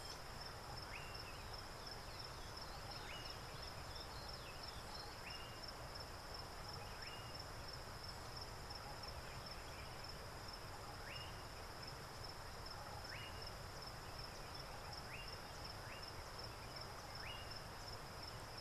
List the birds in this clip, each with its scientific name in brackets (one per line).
Slate-colored Boubou (Laniarius funebris)